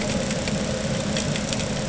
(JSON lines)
{"label": "anthrophony, boat engine", "recorder": "HydroMoth"}